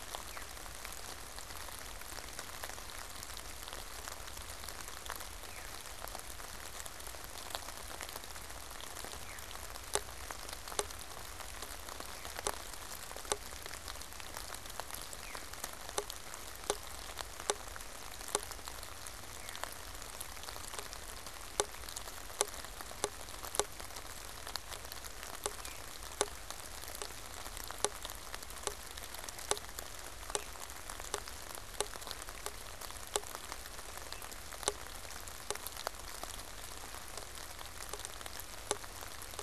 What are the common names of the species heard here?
Veery